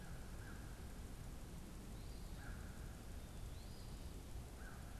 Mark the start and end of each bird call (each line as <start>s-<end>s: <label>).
0.0s-5.0s: American Crow (Corvus brachyrhynchos)
3.3s-4.2s: Eastern Phoebe (Sayornis phoebe)